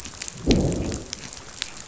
{"label": "biophony, growl", "recorder": "SoundTrap 500"}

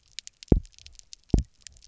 {"label": "biophony, double pulse", "recorder": "SoundTrap 300"}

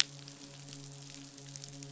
{"label": "biophony, midshipman", "recorder": "SoundTrap 500"}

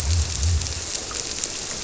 {"label": "biophony", "recorder": "SoundTrap 300"}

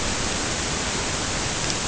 {"label": "ambient", "recorder": "HydroMoth"}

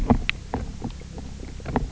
{"label": "biophony, knock croak", "recorder": "SoundTrap 300"}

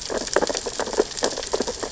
{"label": "biophony, sea urchins (Echinidae)", "recorder": "SoundTrap 600 or HydroMoth"}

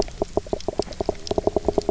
{"label": "biophony, knock croak", "recorder": "SoundTrap 300"}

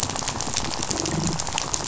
{"label": "biophony, rattle", "recorder": "SoundTrap 500"}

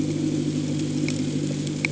{"label": "anthrophony, boat engine", "recorder": "HydroMoth"}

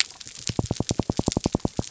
{"label": "biophony", "recorder": "SoundTrap 300"}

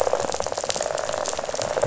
{"label": "biophony, rattle response", "recorder": "SoundTrap 500"}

